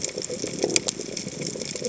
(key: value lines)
label: biophony
recorder: HydroMoth